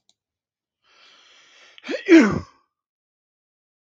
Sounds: Sneeze